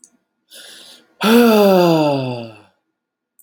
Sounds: Sigh